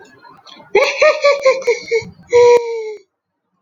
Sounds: Laughter